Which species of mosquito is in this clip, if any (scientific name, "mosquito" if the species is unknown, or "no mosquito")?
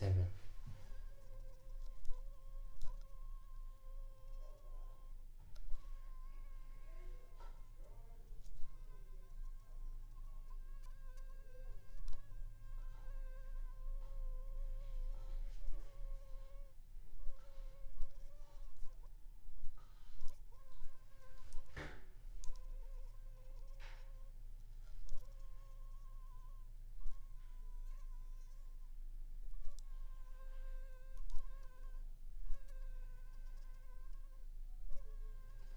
Anopheles funestus s.l.